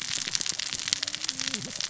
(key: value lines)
label: biophony, cascading saw
recorder: SoundTrap 600 or HydroMoth